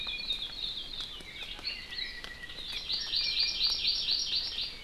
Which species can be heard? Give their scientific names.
Loxops coccineus, Himatione sanguinea, Chlorodrepanis virens